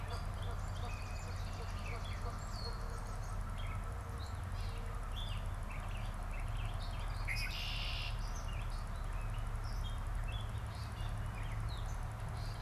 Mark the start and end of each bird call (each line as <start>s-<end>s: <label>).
0.0s-3.8s: Canada Goose (Branta canadensis)
0.0s-12.6s: Gray Catbird (Dumetella carolinensis)
0.2s-2.7s: Swamp Sparrow (Melospiza georgiana)
7.0s-8.4s: Red-winged Blackbird (Agelaius phoeniceus)